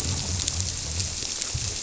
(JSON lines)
{"label": "biophony", "recorder": "SoundTrap 300"}